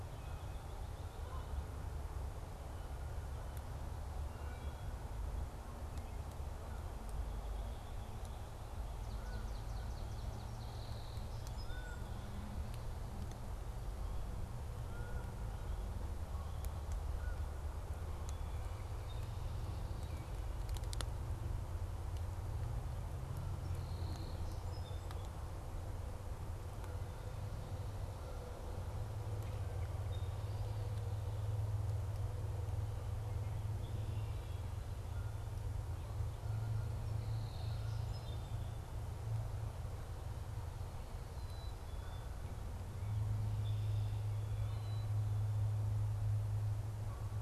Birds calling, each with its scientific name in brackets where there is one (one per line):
Canada Goose (Branta canadensis)
Black-capped Chickadee (Poecile atricapillus)
Swamp Sparrow (Melospiza georgiana)
American Robin (Turdus migratorius)
Wood Thrush (Hylocichla mustelina)
Red-winged Blackbird (Agelaius phoeniceus)
Song Sparrow (Melospiza melodia)